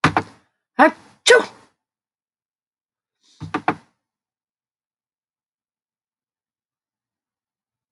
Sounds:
Sneeze